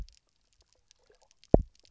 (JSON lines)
{"label": "biophony, double pulse", "recorder": "SoundTrap 300"}